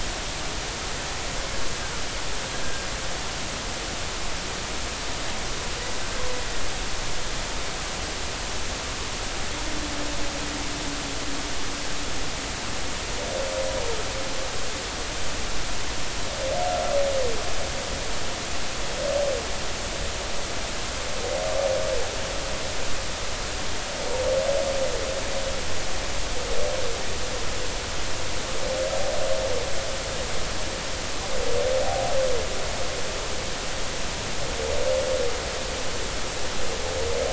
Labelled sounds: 31.8	32.1	humpback whale, 0.80 to 0.83 kHz

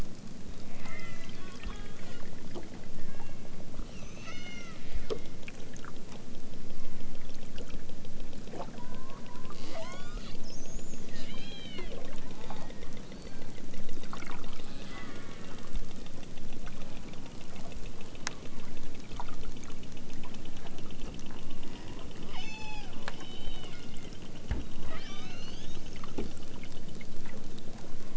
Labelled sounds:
0.7	2.3	killer whale, southern Alaska resident, 0.60 to 7.9 kHz
3.0	5.4	killer whale, southern Alaska resident, 0.55 to 6.5 kHz
6.7	7.2	killer whale, southern Alaska resident, 0.60 to 3.5 kHz
8.7	10.3	killer whale, southern Alaska resident, 0.64 to 8.0 kHz
11.1	11.9	killer whale, southern Alaska resident, 1.3 to 5.4 kHz
12.2	12.9	killer whale, southern Alaska resident, 0.46 to 5.2 kHz
14.7	16.0	killer whale, southern Alaska resident, 0.74 to 2.3 kHz
22.2	24.2	killer whale, southern Alaska resident, 0.46 to 8.0 kHz
24.8	26.0	killer whale, southern Alaska resident, 0.78 to 6.8 kHz

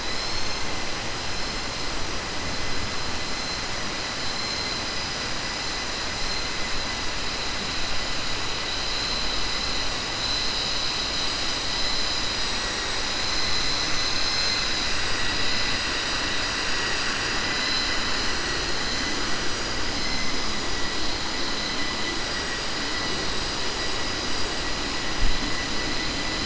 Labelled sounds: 16.7	18.2	vessel noise, 1.1 to 6.1 kHz

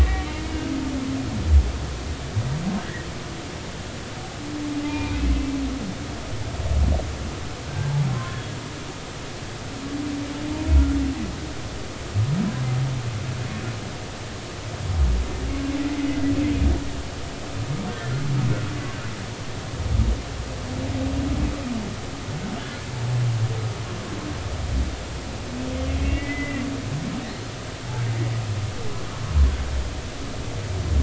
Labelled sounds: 0.0	0.7	humpback whale, 1.8 to 2.9 kHz
2.8	3.0	humpback whale, 1.5 to 2.0 kHz
4.8	5.3	humpback whale, 0.83 to 2.6 kHz
7.7	8.4	humpback whale, 0.99 to 1.7 kHz
10.7	11.0	humpback whale, 1.3 to 1.4 kHz
26.0	26.6	humpback whale, 1.9 to 2.4 kHz

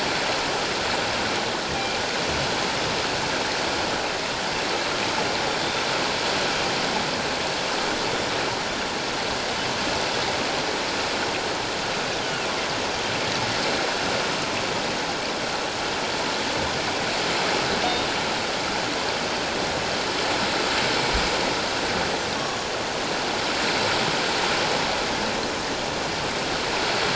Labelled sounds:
1.7	2.0	killer whale, northern resident, G clan, 2.3 to 2.4 kHz
5.5	5.9	killer whale, northern resident, G clan, 3.5 to 3.7 kHz
12.2	12.5	killer whale, northern resident, G clan, 2.5 to 3.2 kHz

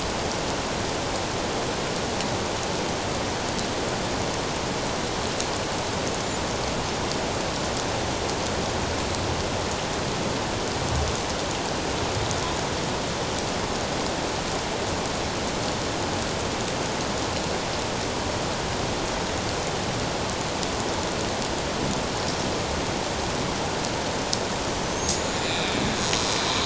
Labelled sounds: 25.0	25.8	killer whale, Bigg's (transient), 2.3 to 7.3 kHz

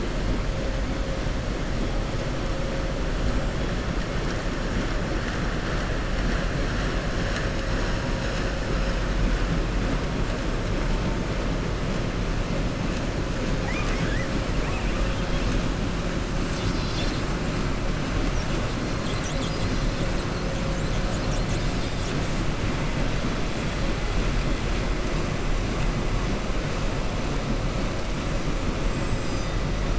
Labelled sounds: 13.5	15.0	killer whale, southern resident, 0.83 to 6.8 kHz

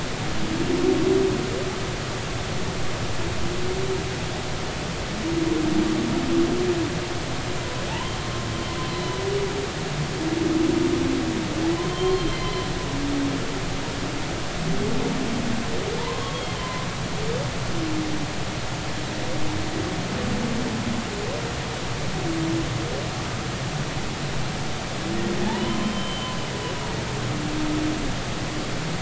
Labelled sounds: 11.9	12.7	humpback whale, 0.96 to 3.3 kHz
16.0	16.9	humpback whale, 0.83 to 3.3 kHz
25.4	26.3	humpback whale, 0.80 to 3.2 kHz

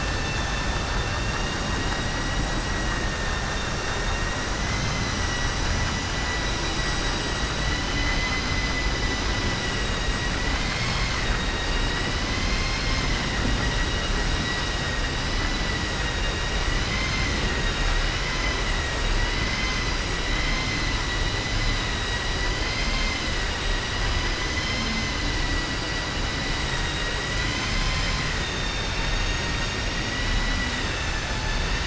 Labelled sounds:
3.8	4.3	vessel noise, 1.8 to 3.8 kHz
4.6	5.1	vessel noise, 2.0 to 4.1 kHz
7.5	8.8	vessel noise, 1.3 to 6.1 kHz
9.3	10.1	vessel noise, 1.9 to 4.8 kHz
11.2	12.1	vessel noise, 1.9 to 4.8 kHz
16.8	17.3	vessel noise, 2.0 to 5.0 kHz

